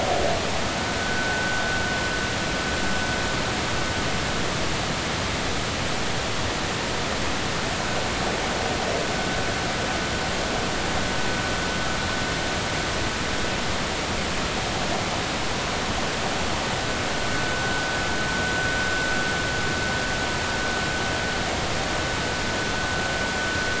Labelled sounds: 1.0	1.6	vessel noise, 1.4 to 1.7 kHz
17.3	17.8	vessel noise, 1.47 to 1.54 kHz

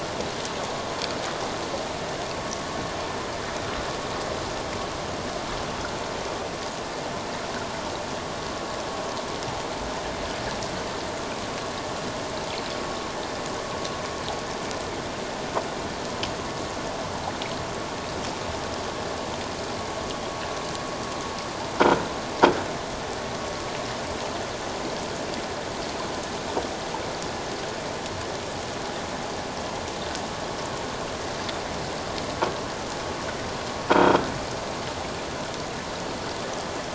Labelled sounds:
33.9	34.2	croaking sound likely from a nearby submerged object, 1.3 to 3.4 kHz

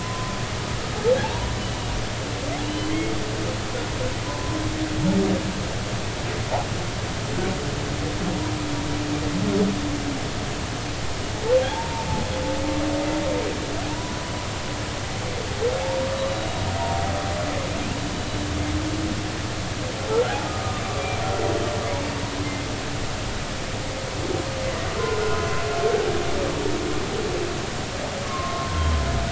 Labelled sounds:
0.0	1.5	humpback whale, 0.80 to 1.1 kHz
2.7	3.1	humpback whale, 2.9 to 3.3 kHz
4.2	4.6	humpback whale, 0.86 to 1.1 kHz
11.6	12.1	humpback whale, 0.80 to 0.96 kHz
13.9	14.3	humpback whale, 0.90 to 1.0 kHz
16.1	16.7	humpback whale, 3.8 to 4.0 kHz
22.4	22.7	humpback whale, 2.0 to 2.2 kHz
25.0	25.4	humpback whale, 1.3 to 1.5 kHz
28.2	29.0	humpback whale, 0.93 to 1.2 kHz

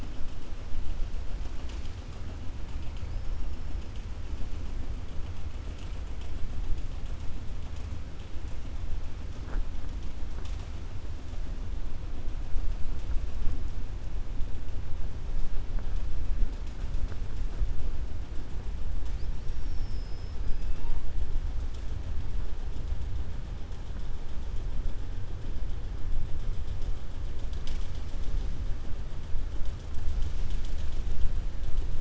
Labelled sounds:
19.4	20.7	killer whale, southern resident, 4.7 to 6.2 kHz

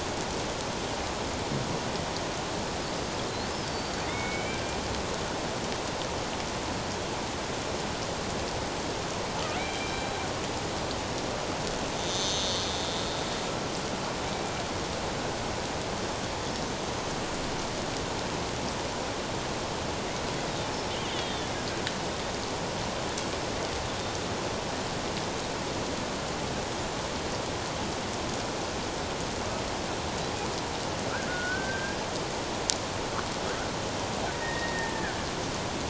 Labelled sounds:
3.7	4.6	killer whale, Bigg's (transient), 2.0 to 4.8 kHz
9.6	10.2	killer whale, Bigg's (transient), 2.1 to 4.0 kHz
12.0	12.6	killer whale, Bigg's (transient), 3.1 to 6.4 kHz
21.1	21.5	killer whale, Bigg's (transient), 3.0 to 3.8 kHz
31.3	32.0	killer whale, Bigg's (transient), 1.4 to 1.7 kHz
34.3	35.2	killer whale, Bigg's (transient), 1.4 to 1.9 kHz

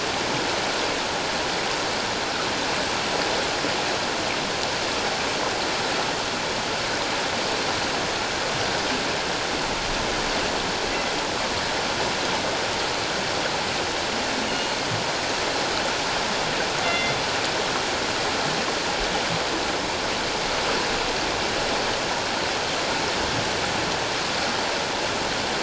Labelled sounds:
14.5	14.7	killer whale, northern resident, G clan, 2.8 to 2.9 kHz
16.8	17.2	killer whale, northern resident, G clan, 2.0 to 3.5 kHz

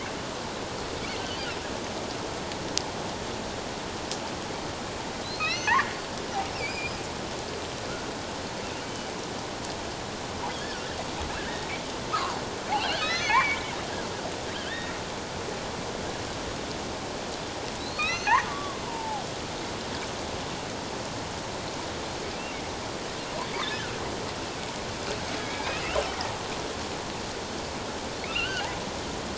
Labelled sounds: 5.2	5.9	killer whale, offshore, 1.2 to 6.2 kHz
6.5	6.9	killer whale, offshore, 2.2 to 2.8 kHz
11.5	11.7	killer whale, offshore, 1.7 to 1.9 kHz
12.1	13.6	killer whale, offshore, 0.94 to 6.4 kHz
14.5	14.9	killer whale, offshore, 1.4 to 3.8 kHz
17.8	19.2	killer whale, offshore, 0.78 to 4.4 kHz
23.6	24.0	killer whale, offshore, 1.3 to 1.8 kHz
25.4	26.0	killer whale, offshore, 2.1 to 3.2 kHz
28.3	28.7	killer whale, offshore, 1.2 to 3.2 kHz

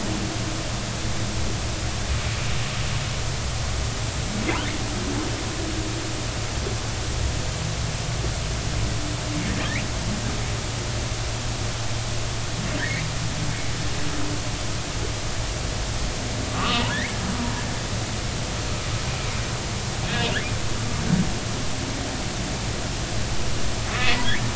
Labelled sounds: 16.5	17.2	humpback whale, 1.0 to 2.7 kHz
24.0	24.3	humpback whale, 1.9 to 2.1 kHz

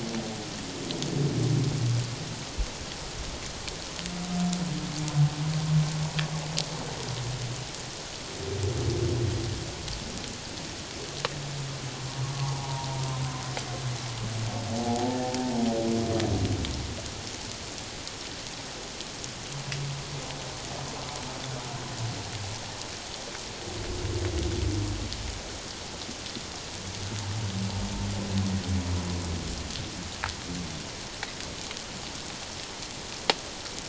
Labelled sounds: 12.3	12.9	humpback whale, 0.78 to 1.2 kHz
14.8	15.2	humpback whale, 0.78 to 0.94 kHz

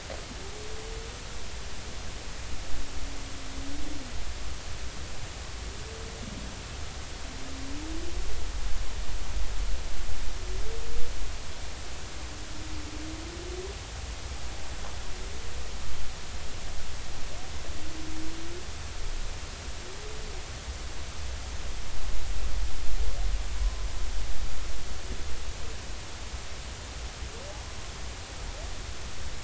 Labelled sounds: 23.6	23.9	humpback whale, 0.99 to 1.1 kHz

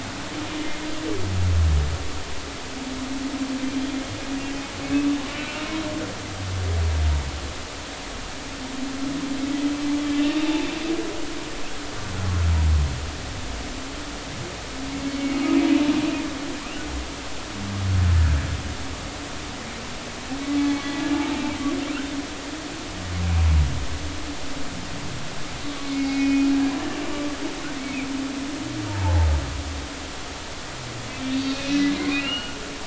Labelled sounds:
10.2	10.5	humpback whale, 2.6 to 2.8 kHz
15.1	15.4	humpback whale, 2.2 to 2.3 kHz
20.7	21.0	humpback whale, 4.2 to 4.3 kHz
25.8	26.5	humpback whale, 2.1 to 2.5 kHz
29.0	29.3	humpback whale, 0.80 to 0.96 kHz
31.1	32.6	humpback whale, 1.3 to 3.8 kHz

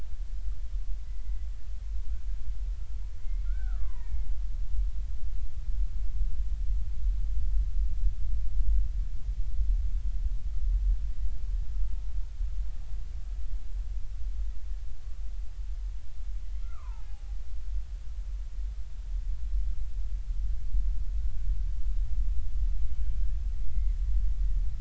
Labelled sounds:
1.1	1.3	killer whale, Bigg's (transient), 1.9 to 2.0 kHz
3.2	4.3	killer whale, Bigg's (transient), 0.80 to 2.3 kHz
16.5	17.4	killer whale, Bigg's (transient), 0.80 to 2.2 kHz
23.6	24.0	killer whale, Bigg's (transient), 2.0 to 2.2 kHz

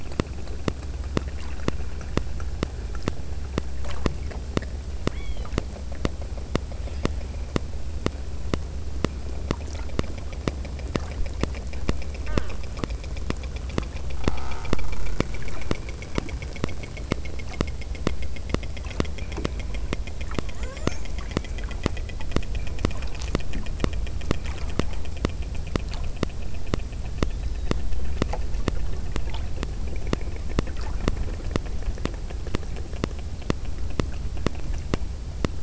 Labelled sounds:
5.1	5.6	killer whale, southern Alaska resident, 1.4 to 5.8 kHz
6.8	7.6	killer whale, southern Alaska resident, 1.1 to 5.3 kHz
12.3	12.7	killer whale, southern Alaska resident, 0.75 to 3.3 kHz
20.6	21.1	killer whale, southern Alaska resident, 0.27 to 8.0 kHz

